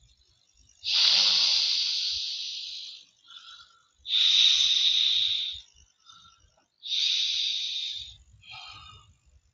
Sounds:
Sniff